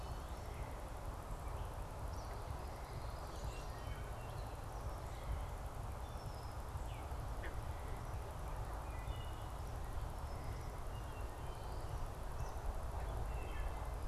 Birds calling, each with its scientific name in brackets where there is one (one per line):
Wood Thrush (Hylocichla mustelina)
Red-winged Blackbird (Agelaius phoeniceus)
Eastern Kingbird (Tyrannus tyrannus)